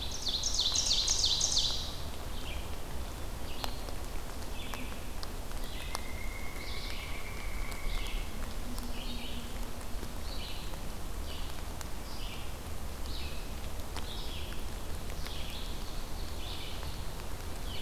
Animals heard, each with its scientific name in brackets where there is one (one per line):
Pileated Woodpecker (Dryocopus pileatus)
Ovenbird (Seiurus aurocapilla)
Red-eyed Vireo (Vireo olivaceus)